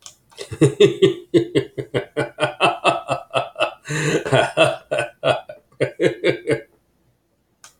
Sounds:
Laughter